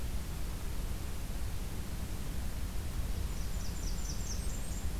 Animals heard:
Blackburnian Warbler (Setophaga fusca)

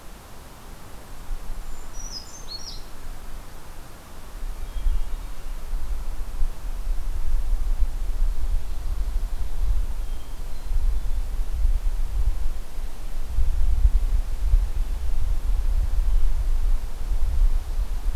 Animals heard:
Hermit Thrush (Catharus guttatus)
Brown Creeper (Certhia americana)

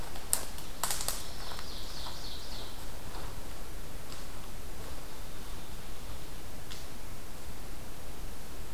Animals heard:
Ovenbird (Seiurus aurocapilla)

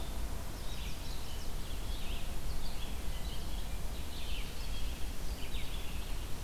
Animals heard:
Chestnut-sided Warbler (Setophaga pensylvanica)
Red-eyed Vireo (Vireo olivaceus)

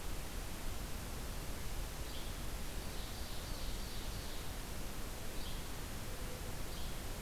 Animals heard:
Ovenbird (Seiurus aurocapilla)
Yellow-bellied Flycatcher (Empidonax flaviventris)

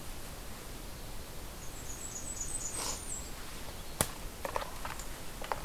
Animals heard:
Blackburnian Warbler (Setophaga fusca)

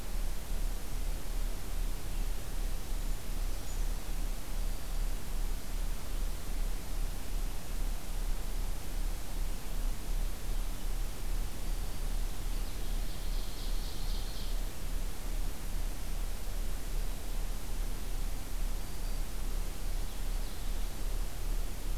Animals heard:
Brown Creeper (Certhia americana)
Ovenbird (Seiurus aurocapilla)
Black-throated Green Warbler (Setophaga virens)

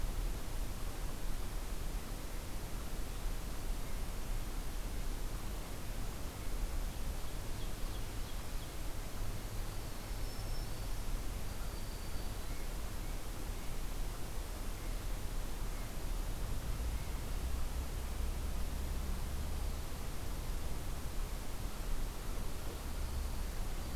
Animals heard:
Black-throated Green Warbler (Setophaga virens)
Ovenbird (Seiurus aurocapilla)

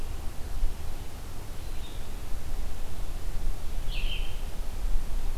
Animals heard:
Blue-headed Vireo (Vireo solitarius)

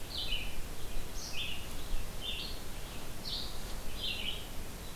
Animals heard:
Red-eyed Vireo (Vireo olivaceus)

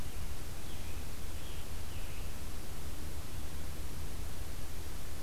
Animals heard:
Scarlet Tanager (Piranga olivacea)

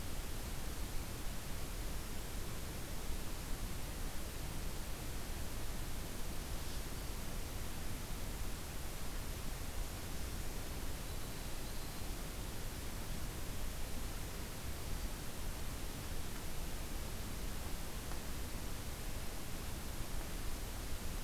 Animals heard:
Yellow-rumped Warbler (Setophaga coronata)

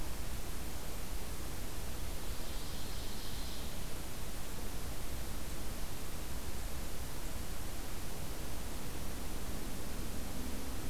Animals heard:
Ovenbird (Seiurus aurocapilla)

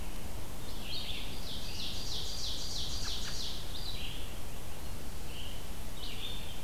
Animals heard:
American Robin (Turdus migratorius)
Ovenbird (Seiurus aurocapilla)
Red-eyed Vireo (Vireo olivaceus)

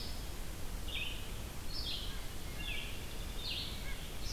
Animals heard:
Red-eyed Vireo (Vireo olivaceus)
Wood Thrush (Hylocichla mustelina)
White-breasted Nuthatch (Sitta carolinensis)

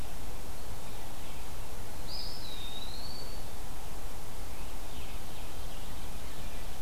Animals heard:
Eastern Wood-Pewee (Contopus virens)

